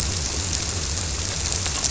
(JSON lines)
{"label": "biophony", "recorder": "SoundTrap 300"}